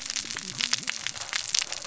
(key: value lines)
label: biophony, cascading saw
recorder: SoundTrap 600 or HydroMoth